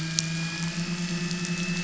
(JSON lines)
{"label": "anthrophony, boat engine", "recorder": "SoundTrap 500"}